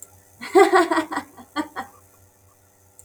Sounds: Laughter